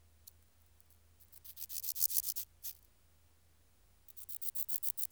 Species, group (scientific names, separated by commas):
Pseudochorthippus montanus, Orthoptera